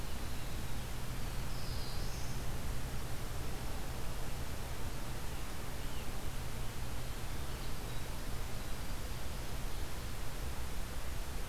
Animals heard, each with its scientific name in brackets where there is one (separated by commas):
Black-throated Blue Warbler (Setophaga caerulescens)